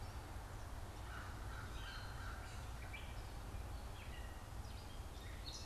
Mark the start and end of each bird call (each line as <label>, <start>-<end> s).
American Crow (Corvus brachyrhynchos), 1.0-2.7 s
Gray Catbird (Dumetella carolinensis), 1.6-5.7 s